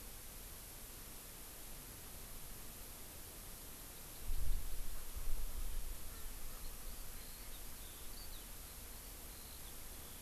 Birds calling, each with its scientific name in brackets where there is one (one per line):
Hawaii Amakihi (Chlorodrepanis virens)
Eurasian Skylark (Alauda arvensis)